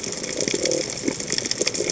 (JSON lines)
{"label": "biophony", "recorder": "HydroMoth"}